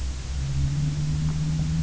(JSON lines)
{"label": "anthrophony, boat engine", "recorder": "SoundTrap 300"}